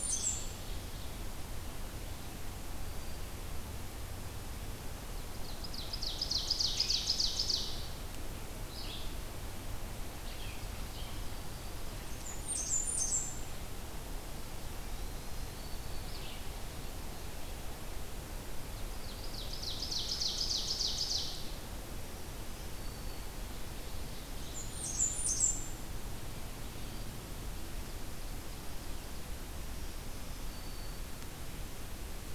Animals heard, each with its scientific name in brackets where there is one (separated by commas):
Ovenbird (Seiurus aurocapilla), Red-eyed Vireo (Vireo olivaceus), Black-throated Green Warbler (Setophaga virens), Blackburnian Warbler (Setophaga fusca)